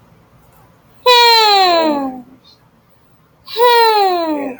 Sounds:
Sigh